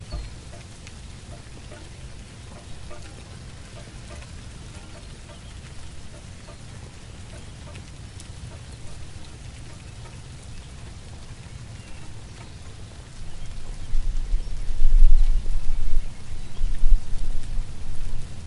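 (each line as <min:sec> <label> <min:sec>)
0:00.0 Rain falling outdoors. 0:18.5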